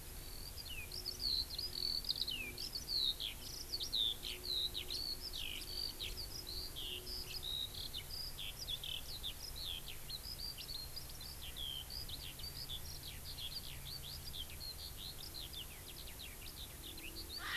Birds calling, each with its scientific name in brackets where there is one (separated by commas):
Eurasian Skylark (Alauda arvensis)